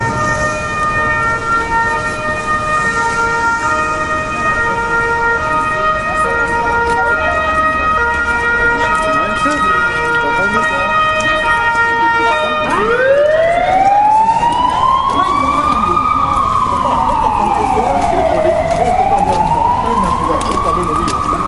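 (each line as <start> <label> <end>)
0.0 An ambulance siren pulses. 12.6
12.6 A pulsing police siren is sounding. 21.5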